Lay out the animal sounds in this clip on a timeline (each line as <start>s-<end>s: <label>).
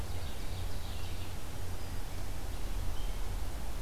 0.0s-1.5s: Ovenbird (Seiurus aurocapilla)
0.0s-3.4s: Red-eyed Vireo (Vireo olivaceus)